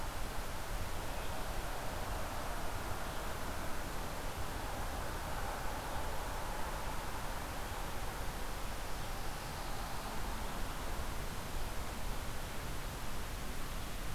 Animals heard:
forest ambience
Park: Marsh-Billings-Rockefeller National Historical Park